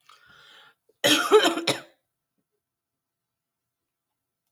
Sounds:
Cough